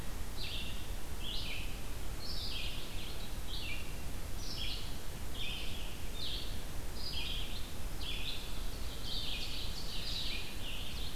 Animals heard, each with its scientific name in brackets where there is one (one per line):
Ovenbird (Seiurus aurocapilla)
Red-eyed Vireo (Vireo olivaceus)